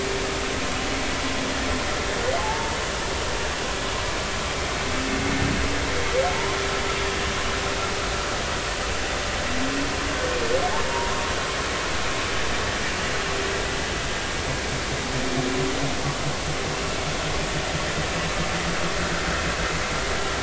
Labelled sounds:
2.4	2.8	humpback whale, 0.80 to 0.96 kHz
10.7	11.1	humpback whale, 0.80 to 0.99 kHz

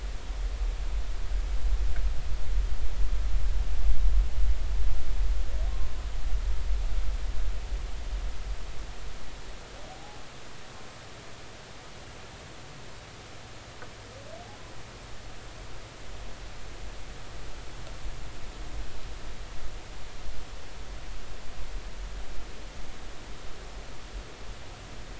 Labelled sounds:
9.9	10.2	humpback whale, 0.80 to 0.93 kHz

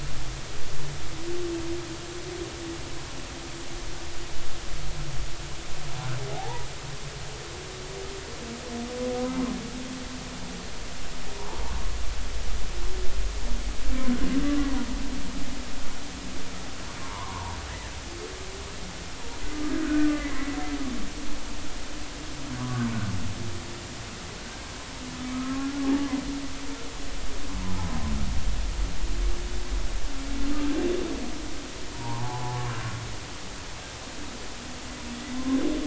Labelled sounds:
6.3	6.7	humpback whale, 0.80 to 1.0 kHz
17.0	17.6	humpback whale, 0.83 to 1.2 kHz
19.8	20.1	humpback whale, 1.4 to 1.6 kHz
22.6	22.9	humpback whale, 0.96 to 1.3 kHz
25.3	26.1	humpback whale, 0.80 to 1.4 kHz
32.9	33.6	humpback whale, 0.80 to 1.2 kHz

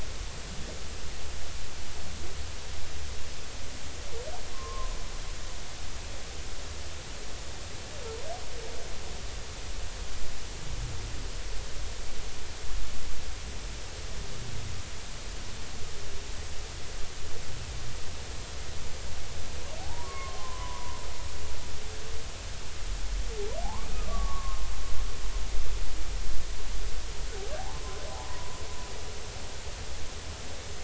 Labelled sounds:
4.5	4.9	humpback whale, 0.99 to 1.1 kHz
19.8	21.0	humpback whale, 0.80 to 1.2 kHz
23.6	24.7	humpback whale, 0.80 to 1.3 kHz
27.6	27.8	humpback whale, 0.80 to 1.1 kHz
28.1	28.6	humpback whale, 0.80 to 1.1 kHz

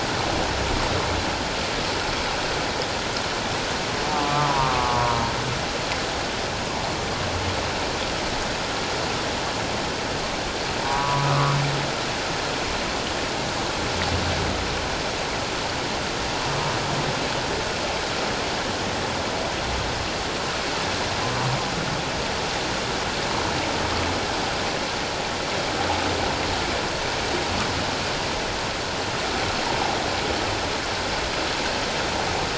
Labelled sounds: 4.1	5.2	humpback whale, 0.91 to 1.3 kHz
10.8	11.6	humpback whale, 0.88 to 1.4 kHz

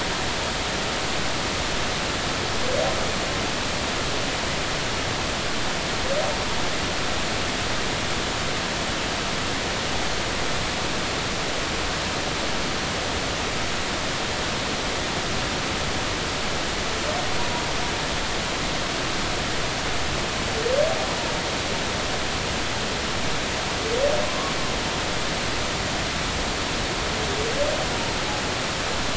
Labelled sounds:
17.4	17.6	humpback whale, 0.90 to 0.99 kHz
24.3	24.5	humpback whale, 0.99 to 1.2 kHz

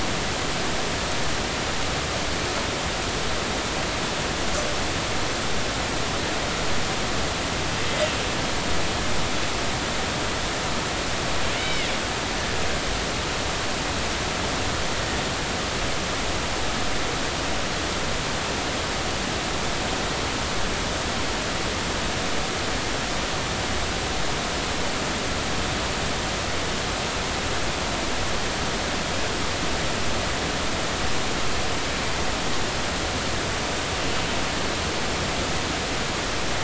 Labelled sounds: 11.6	11.9	killer whale, northern resident, A clan, AB subclan, call N20, 2.0 to 3.1 kHz

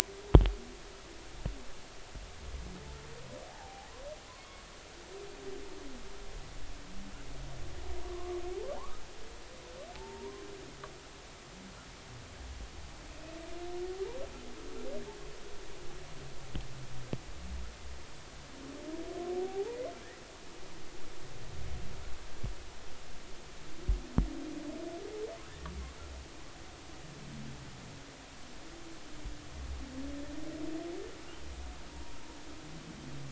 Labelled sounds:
3.5	3.9	humpback whale, 0.80 to 0.96 kHz
4.4	4.6	humpback whale, 2.1 to 2.2 kHz
8.0	8.4	humpback whale, 0.99 to 1.2 kHz
8.7	9.0	humpback whale, 0.86 to 1.3 kHz
9.9	10.4	humpback whale, 0.83 to 1.1 kHz
19.4	19.8	humpback whale, 0.80 to 0.99 kHz
31.9	32.2	humpback whale, 0.90 to 1.0 kHz

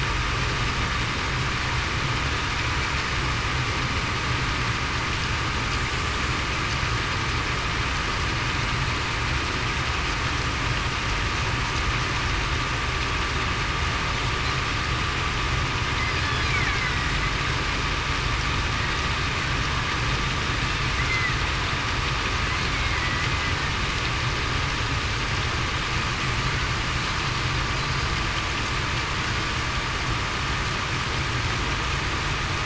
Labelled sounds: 21.0	21.4	killer whale, Bigg's (transient), 1.9 to 2.1 kHz

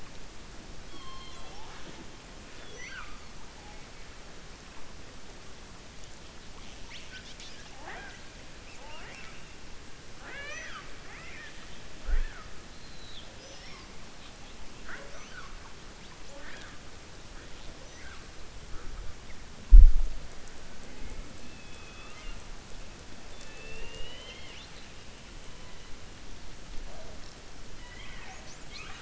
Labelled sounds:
8.6	9.4	killer whale, 0.52 to 2.9 kHz
11.0	11.6	killer whale, 0.86 to 3.6 kHz
21.4	22.4	killer whale, 0.69 to 3.6 kHz
23.3	24.9	killer whale, 0.45 to 7.5 kHz

